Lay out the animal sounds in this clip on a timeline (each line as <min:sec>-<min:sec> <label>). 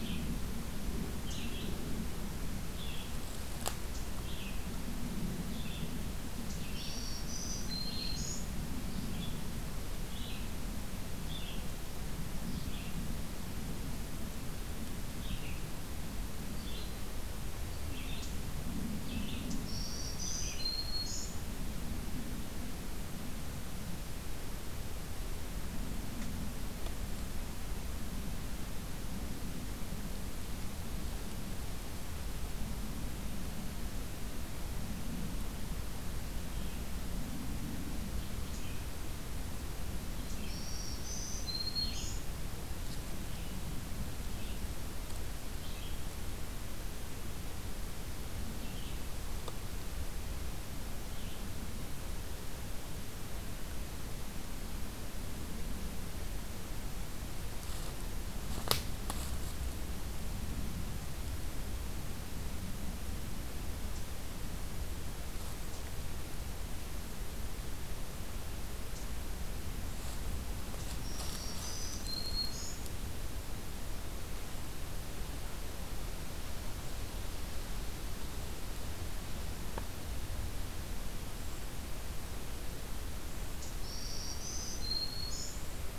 0:00.0-0:19.6 Red-eyed Vireo (Vireo olivaceus)
0:06.7-0:08.7 Black-throated Green Warbler (Setophaga virens)
0:19.5-0:21.8 Black-throated Green Warbler (Setophaga virens)
0:40.1-0:51.5 Red-eyed Vireo (Vireo olivaceus)
0:40.3-0:42.4 Black-throated Green Warbler (Setophaga virens)
1:10.9-1:13.3 Black-throated Green Warbler (Setophaga virens)
1:23.4-1:26.0 Black-throated Green Warbler (Setophaga virens)